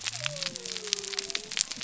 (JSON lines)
{"label": "biophony", "recorder": "SoundTrap 300"}